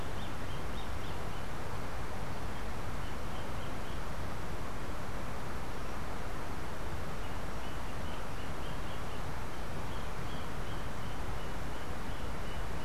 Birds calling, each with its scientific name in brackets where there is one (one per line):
Roadside Hawk (Rupornis magnirostris)